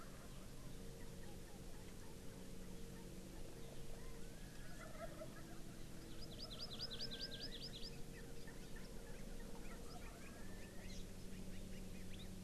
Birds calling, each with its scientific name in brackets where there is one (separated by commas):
Hawaii Amakihi (Chlorodrepanis virens), Chinese Hwamei (Garrulax canorus)